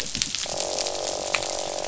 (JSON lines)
{"label": "biophony, croak", "recorder": "SoundTrap 500"}